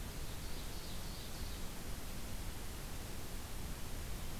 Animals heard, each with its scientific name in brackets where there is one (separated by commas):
Ovenbird (Seiurus aurocapilla)